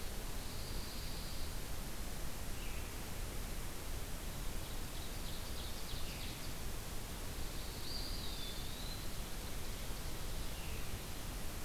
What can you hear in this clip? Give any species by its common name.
Pine Warbler, Ovenbird, Eastern Wood-Pewee